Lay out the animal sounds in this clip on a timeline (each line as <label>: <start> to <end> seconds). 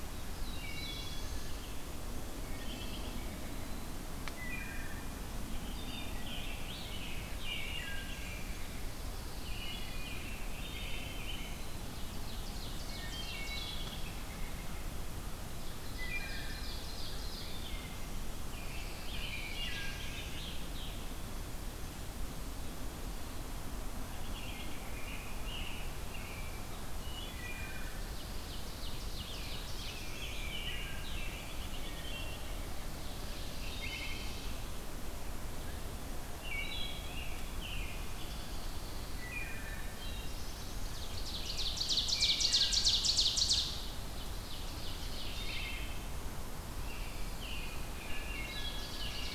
Black-throated Blue Warbler (Setophaga caerulescens): 0.0 to 1.6 seconds
Wood Thrush (Hylocichla mustelina): 0.3 to 1.4 seconds
Wood Thrush (Hylocichla mustelina): 2.3 to 2.9 seconds
American Robin (Turdus migratorius): 2.5 to 3.2 seconds
Wood Thrush (Hylocichla mustelina): 4.2 to 5.0 seconds
Wood Thrush (Hylocichla mustelina): 5.4 to 6.3 seconds
Scarlet Tanager (Piranga olivacea): 5.7 to 8.0 seconds
Wood Thrush (Hylocichla mustelina): 7.6 to 8.6 seconds
Pine Warbler (Setophaga pinus): 9.1 to 10.2 seconds
American Robin (Turdus migratorius): 9.4 to 11.6 seconds
Wood Thrush (Hylocichla mustelina): 10.5 to 11.2 seconds
Ovenbird (Seiurus aurocapilla): 11.8 to 14.1 seconds
Wood Thrush (Hylocichla mustelina): 12.8 to 13.8 seconds
American Robin (Turdus migratorius): 14.0 to 14.8 seconds
Ovenbird (Seiurus aurocapilla): 15.3 to 17.6 seconds
Wood Thrush (Hylocichla mustelina): 16.0 to 16.6 seconds
Wood Thrush (Hylocichla mustelina): 17.6 to 18.3 seconds
Scarlet Tanager (Piranga olivacea): 18.3 to 21.0 seconds
Black-throated Blue Warbler (Setophaga caerulescens): 19.0 to 20.3 seconds
Wood Thrush (Hylocichla mustelina): 19.3 to 20.0 seconds
American Robin (Turdus migratorius): 24.1 to 26.6 seconds
Wood Thrush (Hylocichla mustelina): 27.0 to 27.9 seconds
Ovenbird (Seiurus aurocapilla): 27.8 to 30.1 seconds
Pine Warbler (Setophaga pinus): 28.1 to 29.3 seconds
Black-throated Blue Warbler (Setophaga caerulescens): 29.2 to 30.5 seconds
American Robin (Turdus migratorius): 29.3 to 32.5 seconds
Wood Thrush (Hylocichla mustelina): 30.2 to 31.0 seconds
Wood Thrush (Hylocichla mustelina): 31.6 to 32.4 seconds
Ovenbird (Seiurus aurocapilla): 32.9 to 34.5 seconds
Wood Thrush (Hylocichla mustelina): 33.6 to 34.3 seconds
Wood Thrush (Hylocichla mustelina): 36.3 to 37.2 seconds
American Robin (Turdus migratorius): 36.9 to 38.6 seconds
Pine Warbler (Setophaga pinus): 38.2 to 39.3 seconds
Wood Thrush (Hylocichla mustelina): 39.1 to 39.9 seconds
Black-throated Blue Warbler (Setophaga caerulescens): 39.6 to 41.2 seconds
Ovenbird (Seiurus aurocapilla): 41.0 to 45.8 seconds
Wood Thrush (Hylocichla mustelina): 42.1 to 43.0 seconds
Wood Thrush (Hylocichla mustelina): 45.3 to 46.0 seconds
American Robin (Turdus migratorius): 46.6 to 49.3 seconds
Pine Warbler (Setophaga pinus): 46.8 to 47.8 seconds
Ovenbird (Seiurus aurocapilla): 48.1 to 49.3 seconds
Wood Thrush (Hylocichla mustelina): 48.2 to 48.9 seconds